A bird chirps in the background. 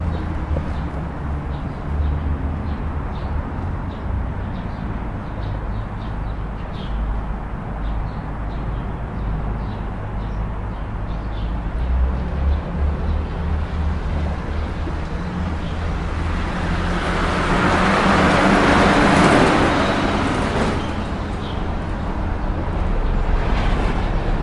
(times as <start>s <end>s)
0.0s 14.2s, 21.0s 23.3s